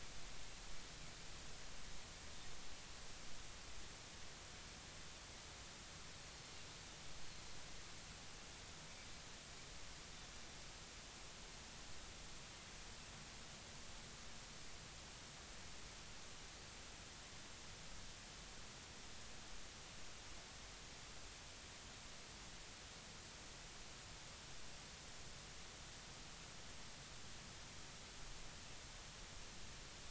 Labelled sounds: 6.2	6.4	Pacific white-sided dolphin, 4.1 to 4.4 kHz

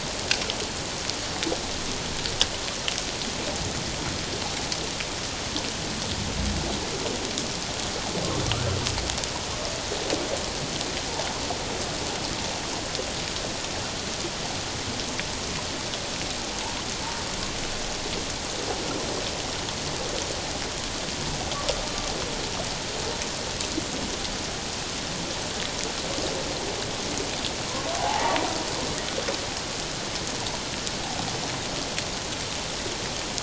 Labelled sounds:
28.0	28.4	humpback whale, 0.78 to 0.97 kHz

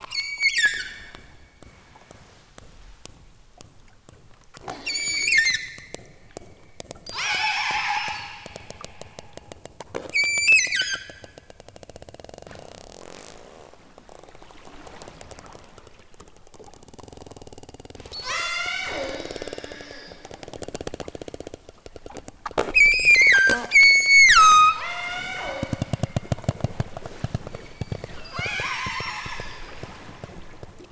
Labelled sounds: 0.1	1.2	killer whale, southern Alaska resident, 1.2 to 8.0 kHz
4.7	6.0	killer whale, southern Alaska resident, 1.2 to 8.0 kHz
7.1	8.5	killer whale, southern Alaska resident, 0.37 to 8.0 kHz
10.0	11.4	killer whale, southern Alaska resident, 1.3 to 8.0 kHz
18.1	19.1	killer whale, southern Alaska resident, 0.37 to 8.0 kHz
22.7	25.6	killer whale, southern Alaska resident, 0.37 to 8.0 kHz
27.4	29.7	killer whale, southern Alaska resident, 0.41 to 8.0 kHz

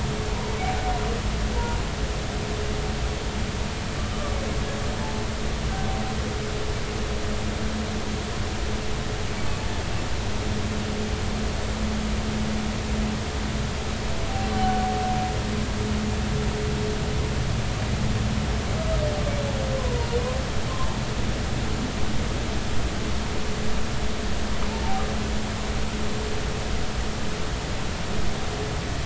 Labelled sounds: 19.8	20.1	humpback whale, 0.90 to 1.1 kHz

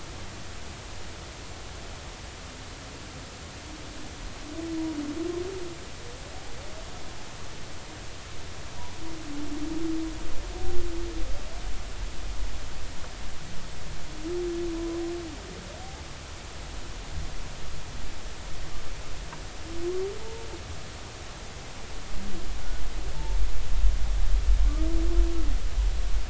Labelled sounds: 14.8	15.0	humpback whale, 0.96 to 1.1 kHz
15.8	16.0	humpback whale, 0.80 to 0.90 kHz
20.2	20.5	humpback whale, 0.83 to 0.96 kHz
23.1	23.4	humpback whale, 0.83 to 0.96 kHz

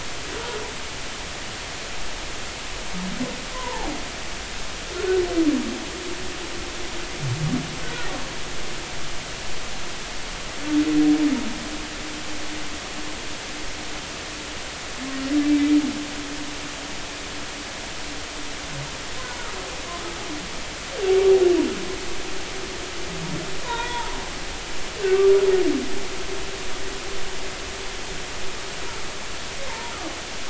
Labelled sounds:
3.5	3.9	humpback whale, 0.80 to 1.1 kHz
7.8	8.1	humpback whale, 1.3 to 1.6 kHz
15.4	15.7	humpback whale, 2.2 to 2.4 kHz
23.6	24.2	humpback whale, 0.86 to 3.6 kHz
29.7	29.9	humpback whale, 0.86 to 1.1 kHz

